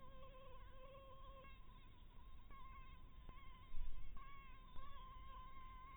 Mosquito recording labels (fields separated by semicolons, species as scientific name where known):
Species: Anopheles maculatus; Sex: female; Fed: blood-fed; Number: one; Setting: cup